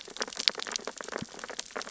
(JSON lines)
{"label": "biophony, sea urchins (Echinidae)", "recorder": "SoundTrap 600 or HydroMoth"}